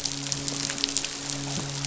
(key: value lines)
label: biophony, midshipman
recorder: SoundTrap 500